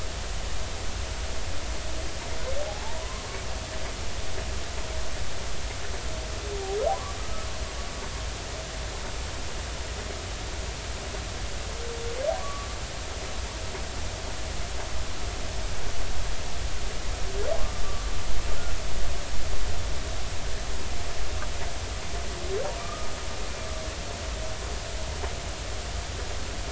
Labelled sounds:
2.6	3.3	humpback whale, 0.80 to 1.2 kHz
7.2	7.5	humpback whale, 1.2 to 1.3 kHz
12.3	12.7	humpback whale, 0.96 to 1.2 kHz
22.8	23.1	humpback whale, 1.1 to 1.3 kHz

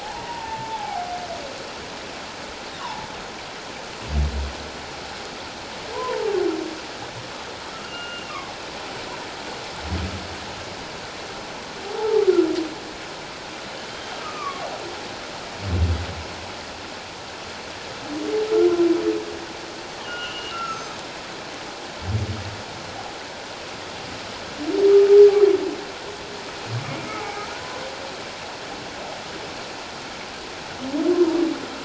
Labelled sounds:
0.0	1.2	humpback whale, 0.78 to 1.0 kHz
2.8	3.1	humpback whale, 0.81 to 1.2 kHz
5.9	6.3	humpback whale, 0.81 to 1.1 kHz
7.8	8.4	humpback whale, 1.3 to 2.9 kHz
12.0	12.3	humpback whale, 0.78 to 1.4 kHz
13.9	14.7	humpback whale, 1.0 to 3.2 kHz
20.0	20.9	humpback whale, 1.2 to 6.7 kHz
27.1	27.4	humpback whale, 0.78 to 2.4 kHz

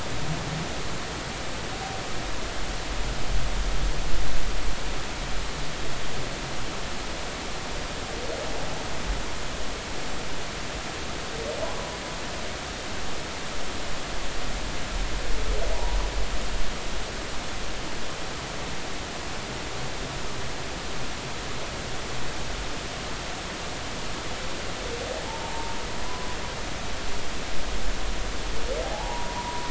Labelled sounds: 15.7	16.0	humpback whale, 0.80 to 0.99 kHz
25.3	25.8	humpback whale, 0.80 to 0.99 kHz
28.8	29.7	humpback whale, 0.80 to 1.1 kHz

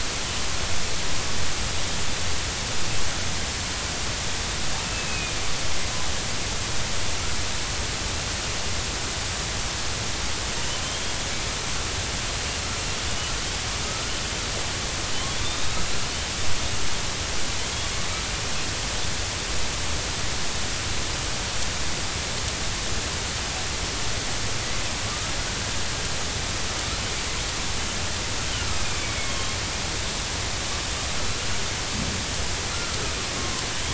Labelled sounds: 4.8	5.3	killer whale, northern resident, 2.4 to 2.7 kHz
10.8	11.1	killer whale, northern resident, 3.1 to 3.3 kHz
15.1	15.7	killer whale, northern resident, 2.9 to 3.8 kHz
25.1	25.3	killer whale, northern resident, 1.1 to 1.4 kHz
29.0	29.5	killer whale, northern resident, 2.1 to 3.3 kHz
32.7	33.0	killer whale, northern resident, 1.2 to 1.4 kHz

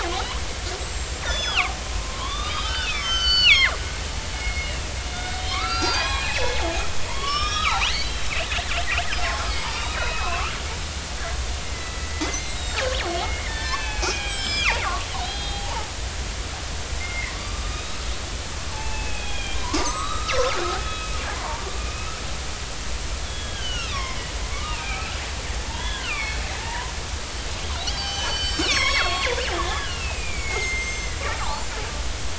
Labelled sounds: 0.8	1.7	killer whale, northern resident, 1.0 to 7.8 kHz
2.0	3.7	killer whale, northern resident, 0.96 to 6.3 kHz
4.3	6.5	killer whale, northern resident, 0.80 to 7.7 kHz
7.1	8.3	killer whale, northern resident, 0.80 to 5.4 kHz
9.4	10.5	killer whale, northern resident, 0.99 to 5.1 kHz
11.6	15.9	killer whale, northern resident, 0.80 to 8.0 kHz
17.0	18.0	killer whale, northern resident, 0.99 to 4.0 kHz
18.7	21.2	killer whale, northern resident, 0.80 to 4.0 kHz
21.8	22.1	killer whale, northern resident, 2.4 to 2.7 kHz
23.2	25.2	killer whale, northern resident, 0.80 to 5.9 kHz
25.7	26.9	killer whale, northern resident, 0.80 to 3.5 kHz
27.8	31.8	killer whale, northern resident, 0.80 to 7.9 kHz

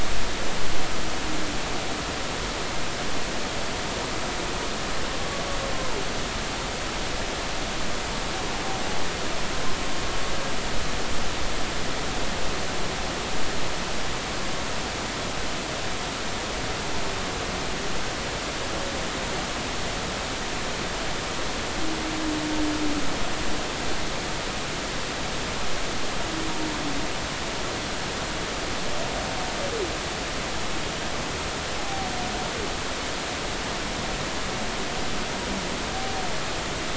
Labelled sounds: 31.8	32.1	humpback whale, 0.80 to 0.86 kHz

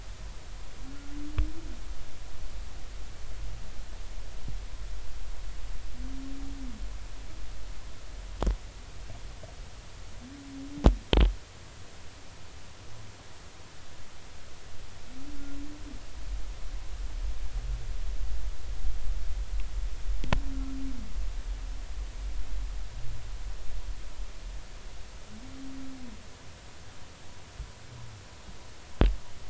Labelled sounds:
0.8	1.1	humpback whale, 1.3 to 1.5 kHz

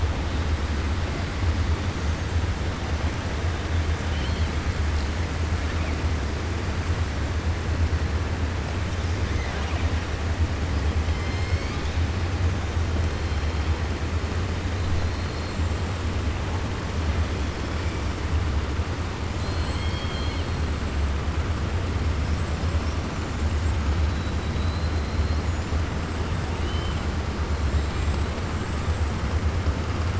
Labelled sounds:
19.3	20.6	killer whale, 2.1 to 5.4 kHz
26.5	27.0	killer whale, 2.6 to 4.1 kHz
27.6	28.3	killer whale, 7.3 to 7.9 kHz

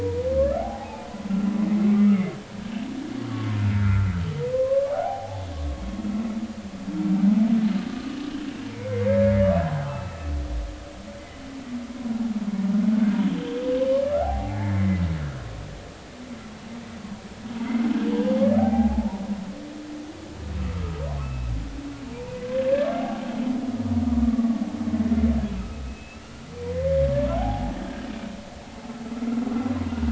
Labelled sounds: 0.0	0.3	humpback whale, 0.90 to 1.0 kHz
0.5	1.1	humpback whale, 0.80 to 2.6 kHz
2.0	2.3	humpback whale, 2.0 to 2.3 kHz
3.3	4.1	humpback whale, 0.99 to 1.5 kHz
4.5	5.5	humpback whale, 0.80 to 1.2 kHz
8.7	10.3	humpback whale, 0.80 to 2.7 kHz
13.4	15.0	humpback whale, 0.80 to 3.3 kHz
18.0	19.2	humpback whale, 0.80 to 3.2 kHz
21.2	21.5	humpback whale, 2.5 to 2.7 kHz
25.5	26.5	humpback whale, 1.2 to 2.9 kHz
27.3	28.1	humpback whale, 0.80 to 1.7 kHz

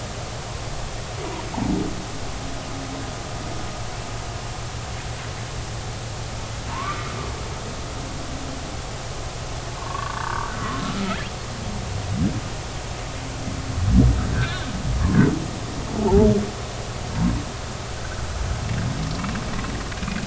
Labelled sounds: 6.7	7.1	humpback whale, 0.86 to 1.2 kHz
9.8	10.5	humpback whale, 0.86 to 1.6 kHz
14.3	14.6	humpback whale, 1.5 to 1.8 kHz
16.0	16.3	humpback whale, 0.80 to 0.99 kHz
20.0	20.2	humpback whale, 2.4 to 2.5 kHz

